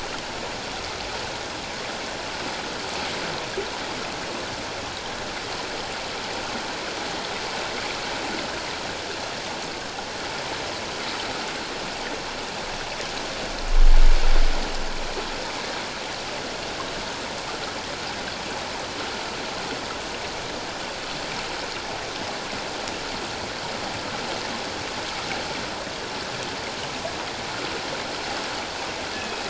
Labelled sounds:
29.1	29.4	killer whale, northern resident, G clan, call N24ii, 2.5 to 2.6 kHz

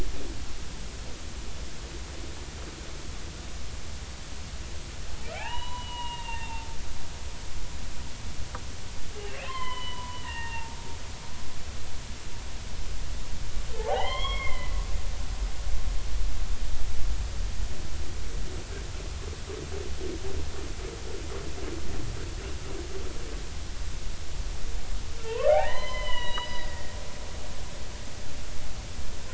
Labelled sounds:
5.3	6.7	humpback whale, 0.80 to 4.0 kHz
9.2	11.2	humpback whale, 0.83 to 3.2 kHz
13.7	14.7	humpback whale, 0.80 to 4.4 kHz
25.2	26.9	humpback whale, 0.80 to 5.0 kHz

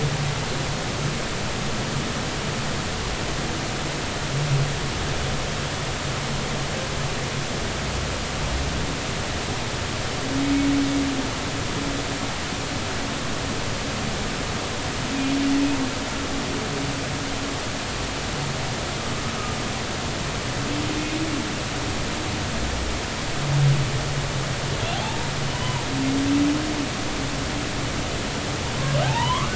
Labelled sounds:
24.9	25.8	humpback whale, 0.80 to 3.1 kHz
29.0	29.5	humpback whale, 0.80 to 3.2 kHz

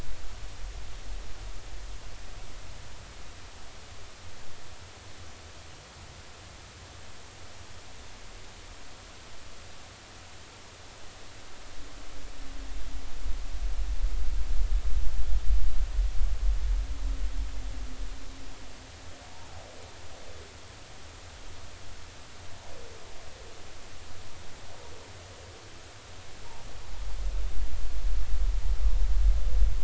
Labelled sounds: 19.3	19.6	humpback whale, 0.80 to 0.99 kHz

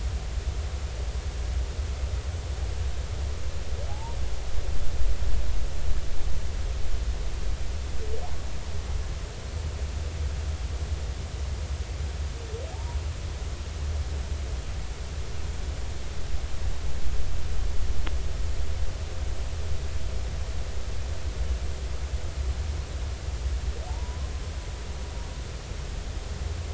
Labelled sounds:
3.9	4.2	humpback whale, 0.80 to 0.99 kHz
12.7	13.0	humpback whale, 0.80 to 1.0 kHz
23.9	24.3	humpback whale, 0.80 to 1.1 kHz

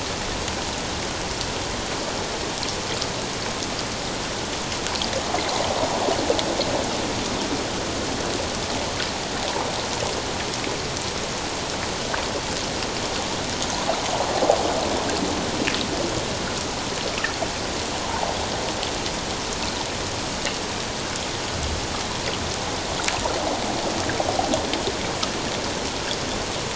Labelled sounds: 18.1	18.4	water noise, 0.78 to 1.1 kHz

